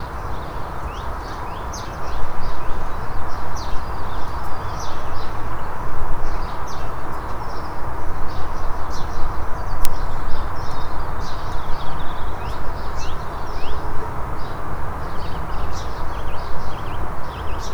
are birds chirping?
yes